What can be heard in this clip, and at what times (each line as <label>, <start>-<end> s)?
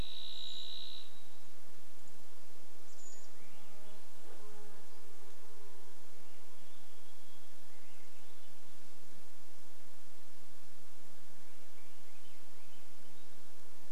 Varied Thrush song, 0-2 s
Brown Creeper call, 0-4 s
Chestnut-backed Chickadee call, 2-4 s
Swainson's Thrush song, 2-4 s
insect buzz, 2-8 s
Varied Thrush song, 6-8 s
Swainson's Thrush song, 6-14 s